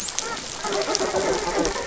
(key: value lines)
label: biophony, dolphin
recorder: SoundTrap 500